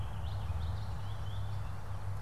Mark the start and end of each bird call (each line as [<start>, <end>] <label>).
[0.20, 2.22] Purple Finch (Haemorhous purpureus)